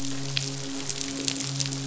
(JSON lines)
{"label": "biophony, midshipman", "recorder": "SoundTrap 500"}